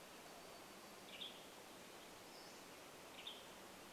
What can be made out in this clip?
Wild Turkey song, warbler song, Western Tanager call, Pacific-slope Flycatcher call